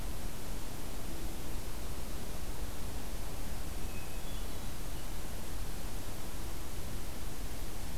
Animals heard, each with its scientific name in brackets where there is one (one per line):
Hermit Thrush (Catharus guttatus)